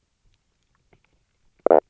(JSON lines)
{"label": "biophony, knock croak", "recorder": "SoundTrap 300"}